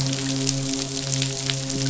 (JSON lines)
{"label": "biophony, midshipman", "recorder": "SoundTrap 500"}